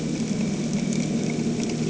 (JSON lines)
{"label": "anthrophony, boat engine", "recorder": "HydroMoth"}